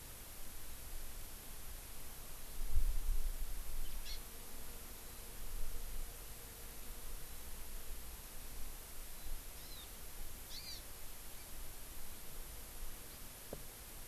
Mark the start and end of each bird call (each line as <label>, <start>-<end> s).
Hawaii Amakihi (Chlorodrepanis virens), 4.0-4.2 s
Warbling White-eye (Zosterops japonicus), 5.0-5.2 s
Warbling White-eye (Zosterops japonicus), 7.2-7.5 s
Warbling White-eye (Zosterops japonicus), 9.1-9.3 s
Hawaii Amakihi (Chlorodrepanis virens), 9.6-9.8 s
Hawaii Amakihi (Chlorodrepanis virens), 10.5-10.8 s